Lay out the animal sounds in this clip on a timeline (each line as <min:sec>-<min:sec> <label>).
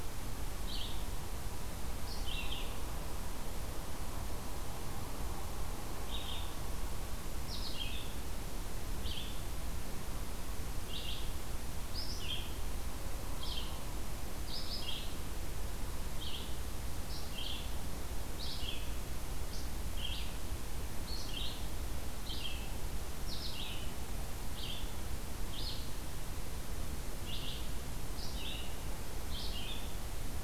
0:00.5-0:02.8 Red-eyed Vireo (Vireo olivaceus)
0:06.0-0:30.4 Red-eyed Vireo (Vireo olivaceus)